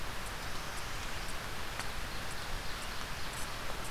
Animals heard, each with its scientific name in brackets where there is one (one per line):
Ovenbird (Seiurus aurocapilla)
Northern Parula (Setophaga americana)